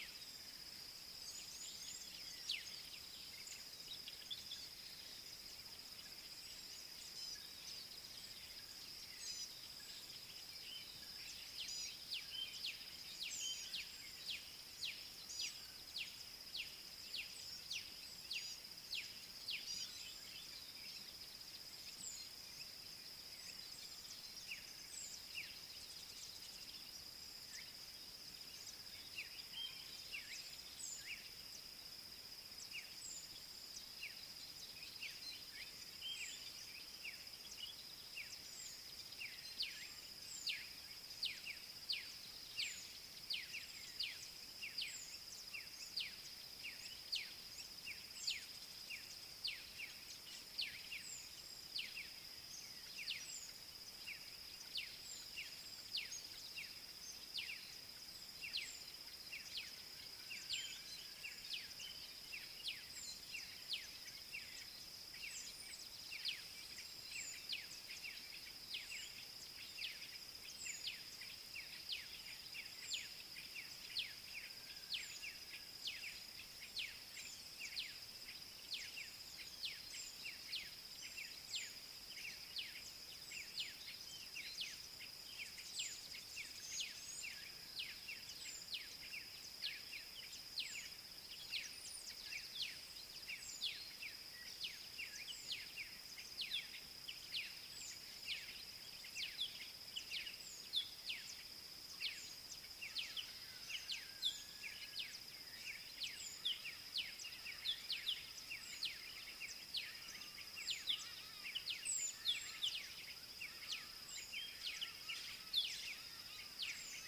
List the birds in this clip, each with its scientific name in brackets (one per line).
Black-backed Puffback (Dryoscopus cubla)
Gray-backed Camaroptera (Camaroptera brevicaudata)
Southern Black-Flycatcher (Melaenornis pammelaina)
Red-cheeked Cordonbleu (Uraeginthus bengalus)